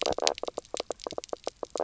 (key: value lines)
label: biophony, knock croak
recorder: SoundTrap 300